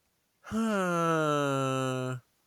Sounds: Sigh